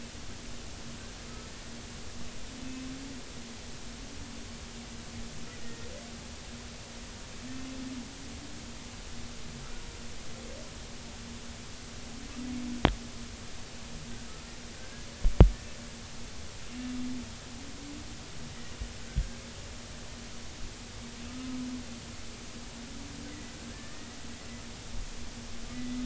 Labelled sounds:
5.6	5.9	humpback whale, 1.8 to 1.9 kHz
14.7	15.1	humpback whale, 1.5 to 1.7 kHz
23.7	24.1	humpback whale, 1.7 to 1.9 kHz
25.7	26.0	humpback whale, 1.9 to 2.0 kHz

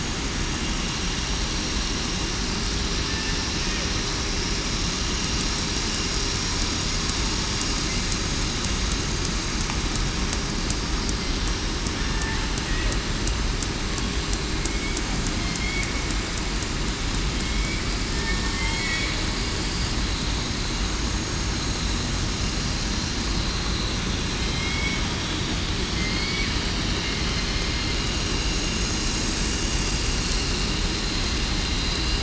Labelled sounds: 17.4	17.8	killer whale, southern resident, 2.2 to 2.4 kHz
18.1	18.5	killer whale, southern resident, 1.8 to 1.9 kHz
24.4	24.9	killer whale, southern resident, 3.1 to 3.4 kHz
25.9	26.5	killer whale, southern resident, 2.0 to 4.5 kHz

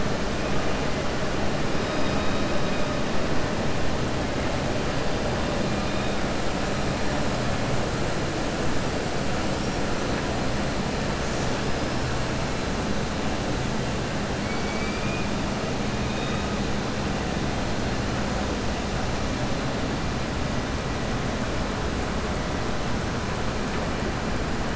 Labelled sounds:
14.4	15.2	killer whale, southern resident, 1.4 to 4.8 kHz

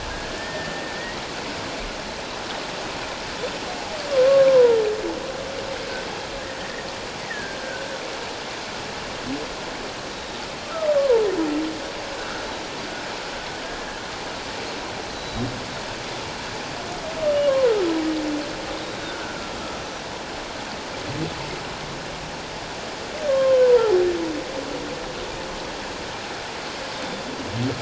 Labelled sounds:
4.1	4.8	humpback whale, 0.88 to 1.2 kHz
6.6	7.9	humpback whale, 1.4 to 2.0 kHz
10.1	10.4	humpback whale, 3.7 to 3.9 kHz
11.0	12.4	humpback whale, 0.84 to 1.5 kHz
15.0	15.4	humpback whale, 3.8 to 6.2 kHz
18.7	19.3	humpback whale, 1.4 to 3.9 kHz
23.3	24.0	humpback whale, 0.81 to 1.1 kHz
26.9	27.2	humpback whale, 3.5 to 3.8 kHz

